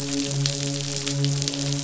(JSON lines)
{"label": "biophony, midshipman", "recorder": "SoundTrap 500"}